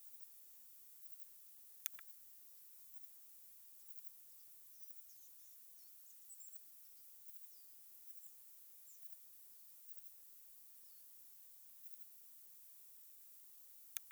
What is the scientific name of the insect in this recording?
Poecilimon chopardi